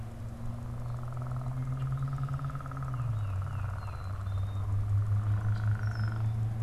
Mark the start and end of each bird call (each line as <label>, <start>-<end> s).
Tufted Titmouse (Baeolophus bicolor), 2.7-4.0 s
Black-capped Chickadee (Poecile atricapillus), 3.7-4.7 s
Red-winged Blackbird (Agelaius phoeniceus), 5.6-6.5 s